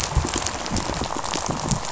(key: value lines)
label: biophony, rattle
recorder: SoundTrap 500